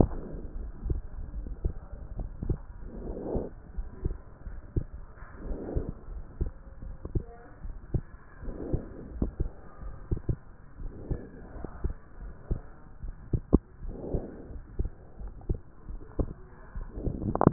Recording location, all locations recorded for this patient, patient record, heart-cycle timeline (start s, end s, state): pulmonary valve (PV)
pulmonary valve (PV)+tricuspid valve (TV)+mitral valve (MV)
#Age: Child
#Sex: Female
#Height: 123.0 cm
#Weight: 30.0 kg
#Pregnancy status: False
#Murmur: Unknown
#Murmur locations: nan
#Most audible location: nan
#Systolic murmur timing: nan
#Systolic murmur shape: nan
#Systolic murmur grading: nan
#Systolic murmur pitch: nan
#Systolic murmur quality: nan
#Diastolic murmur timing: nan
#Diastolic murmur shape: nan
#Diastolic murmur grading: nan
#Diastolic murmur pitch: nan
#Diastolic murmur quality: nan
#Outcome: Abnormal
#Campaign: 2014 screening campaign
0.00	0.20	S2
0.20	0.58	diastole
0.58	0.70	S1
0.70	0.86	systole
0.86	1.00	S2
1.00	1.36	diastole
1.36	1.48	S1
1.48	1.62	systole
1.62	1.72	S2
1.72	2.18	diastole
2.18	2.30	S1
2.30	2.46	systole
2.46	2.58	S2
2.58	3.04	diastole
3.04	3.16	S1
3.16	3.32	systole
3.32	3.44	S2
3.44	3.76	diastole
3.76	3.88	S1
3.88	4.04	systole
4.04	4.16	S2
4.16	4.48	diastole
4.48	4.58	S1
4.58	4.74	systole
4.74	4.86	S2
4.86	5.46	diastole
5.46	5.58	S1
5.58	5.74	systole
5.74	5.84	S2
5.84	6.12	diastole
6.12	6.24	S1
6.24	6.40	systole
6.40	6.52	S2
6.52	6.84	diastole
6.84	6.96	S1
6.96	7.14	systole
7.14	7.24	S2
7.24	7.64	diastole
7.64	7.76	S1
7.76	7.92	systole
7.92	8.04	S2
8.04	8.44	diastole
8.44	8.56	S1
8.56	8.72	systole
8.72	8.82	S2
8.82	9.16	diastole
9.16	9.30	S1
9.30	9.40	systole
9.40	9.50	S2
9.50	9.82	diastole
9.82	9.94	S1
9.94	10.12	systole
10.12	10.39	S2
10.39	10.80	diastole
10.80	10.92	S1
10.92	11.08	systole
11.08	11.20	S2
11.20	11.56	diastole
11.56	11.68	S1
11.68	11.84	systole
11.84	11.94	S2
11.94	12.22	diastole
12.22	12.32	S1
12.32	12.50	systole
12.50	12.60	S2
12.60	13.04	diastole
13.04	13.14	S1
13.14	13.32	systole
13.32	13.42	S2
13.42	13.84	diastole
13.84	13.96	S1
13.96	14.12	systole
14.12	14.24	S2
14.24	14.52	diastole
14.52	14.62	S1
14.62	14.78	systole
14.78	14.90	S2
14.90	15.20	diastole
15.20	15.32	S1
15.32	15.48	systole
15.48	15.58	S2
15.58	15.76	diastole